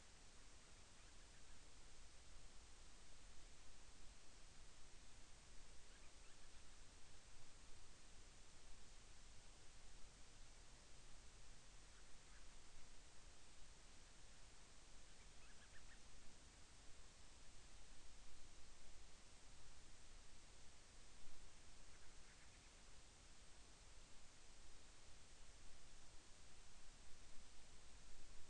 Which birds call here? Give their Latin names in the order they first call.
Hydrobates castro